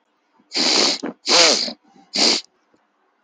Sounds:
Throat clearing